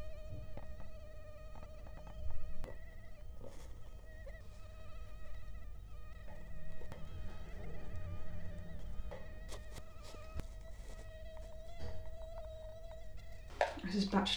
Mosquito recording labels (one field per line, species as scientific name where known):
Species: Culex quinquefasciatus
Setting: cup